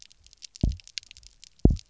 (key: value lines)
label: biophony, double pulse
recorder: SoundTrap 300